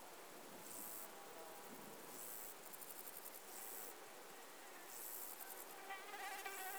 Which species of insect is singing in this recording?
Chorthippus binotatus